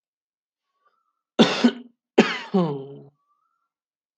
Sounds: Laughter